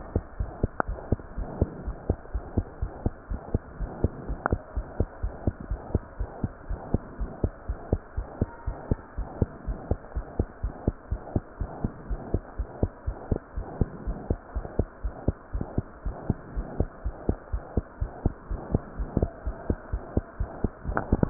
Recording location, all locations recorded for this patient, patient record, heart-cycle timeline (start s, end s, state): pulmonary valve (PV)
aortic valve (AV)+pulmonary valve (PV)+tricuspid valve (TV)+mitral valve (MV)
#Age: Child
#Sex: Female
#Height: 88.0 cm
#Weight: 12.5 kg
#Pregnancy status: False
#Murmur: Present
#Murmur locations: aortic valve (AV)+mitral valve (MV)+pulmonary valve (PV)+tricuspid valve (TV)
#Most audible location: tricuspid valve (TV)
#Systolic murmur timing: Holosystolic
#Systolic murmur shape: Plateau
#Systolic murmur grading: II/VI
#Systolic murmur pitch: Low
#Systolic murmur quality: Blowing
#Diastolic murmur timing: nan
#Diastolic murmur shape: nan
#Diastolic murmur grading: nan
#Diastolic murmur pitch: nan
#Diastolic murmur quality: nan
#Outcome: Abnormal
#Campaign: 2015 screening campaign
0.00	1.29	unannotated
1.29	1.36	diastole
1.36	1.48	S1
1.48	1.58	systole
1.58	1.72	S2
1.72	1.86	diastole
1.86	1.98	S1
1.98	2.06	systole
2.06	2.16	S2
2.16	2.32	diastole
2.32	2.46	S1
2.46	2.54	systole
2.54	2.68	S2
2.68	2.80	diastole
2.80	2.90	S1
2.90	3.02	systole
3.02	3.16	S2
3.16	3.30	diastole
3.30	3.40	S1
3.40	3.52	systole
3.52	3.62	S2
3.62	3.78	diastole
3.78	3.90	S1
3.90	4.02	systole
4.02	4.12	S2
4.12	4.28	diastole
4.28	4.40	S1
4.40	4.50	systole
4.50	4.60	S2
4.60	4.74	diastole
4.74	4.86	S1
4.86	4.98	systole
4.98	5.08	S2
5.08	5.22	diastole
5.22	5.32	S1
5.32	5.44	systole
5.44	5.54	S2
5.54	5.68	diastole
5.68	5.80	S1
5.80	5.92	systole
5.92	6.02	S2
6.02	6.18	diastole
6.18	6.28	S1
6.28	6.40	systole
6.40	6.52	S2
6.52	6.68	diastole
6.68	6.80	S1
6.80	6.92	systole
6.92	7.02	S2
7.02	7.18	diastole
7.18	7.30	S1
7.30	7.42	systole
7.42	7.52	S2
7.52	7.68	diastole
7.68	7.78	S1
7.78	7.90	systole
7.90	8.00	S2
8.00	8.16	diastole
8.16	8.26	S1
8.26	8.40	systole
8.40	8.50	S2
8.50	8.68	diastole
8.68	8.78	S1
8.78	8.90	systole
8.90	9.00	S2
9.00	9.18	diastole
9.18	9.28	S1
9.28	9.40	systole
9.40	9.50	S2
9.50	9.66	diastole
9.66	9.78	S1
9.78	9.88	systole
9.88	9.98	S2
9.98	10.14	diastole
10.14	10.26	S1
10.26	10.38	systole
10.38	10.48	S2
10.48	10.62	diastole
10.62	10.74	S1
10.74	10.86	systole
10.86	10.96	S2
10.96	11.10	diastole
11.10	11.20	S1
11.20	11.34	systole
11.34	11.44	S2
11.44	11.60	diastole
11.60	11.72	S1
11.72	11.82	systole
11.82	11.92	S2
11.92	12.08	diastole
12.08	12.20	S1
12.20	12.32	systole
12.32	12.42	S2
12.42	12.58	diastole
12.58	12.68	S1
12.68	12.78	systole
12.78	12.90	S2
12.90	13.06	diastole
13.06	13.16	S1
13.16	13.28	systole
13.28	13.40	S2
13.40	13.56	diastole
13.56	13.66	S1
13.66	13.78	systole
13.78	13.90	S2
13.90	14.06	diastole
14.06	14.20	S1
14.20	14.28	systole
14.28	14.38	S2
14.38	14.54	diastole
14.54	14.66	S1
14.66	14.74	systole
14.74	14.88	S2
14.88	15.04	diastole
15.04	15.14	S1
15.14	15.24	systole
15.24	15.36	S2
15.36	15.54	diastole
15.54	15.66	S1
15.66	15.76	systole
15.76	15.88	S2
15.88	16.04	diastole
16.04	16.16	S1
16.16	16.28	systole
16.28	16.38	S2
16.38	16.52	diastole
16.52	16.66	S1
16.66	16.78	systole
16.78	16.88	S2
16.88	17.04	diastole
17.04	17.14	S1
17.14	17.24	systole
17.24	17.38	S2
17.38	17.52	diastole
17.52	17.62	S1
17.62	17.76	systole
17.76	17.86	S2
17.86	18.00	diastole
18.00	18.10	S1
18.10	18.20	systole
18.20	18.34	S2
18.34	18.50	diastole
18.50	18.60	S1
18.60	18.70	systole
18.70	18.82	S2
18.82	18.98	diastole
18.98	19.10	S1
19.10	19.16	systole
19.16	19.30	S2
19.30	19.46	diastole
19.46	19.56	S1
19.56	19.68	systole
19.68	19.78	S2
19.78	19.92	diastole
19.92	20.02	S1
20.02	20.12	systole
20.12	20.26	S2
20.26	20.40	diastole
20.40	20.50	S1
20.50	20.60	systole
20.60	20.72	S2
20.72	20.88	diastole
20.88	21.30	unannotated